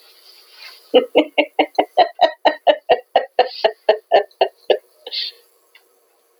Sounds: Laughter